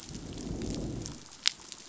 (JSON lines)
{"label": "biophony, growl", "recorder": "SoundTrap 500"}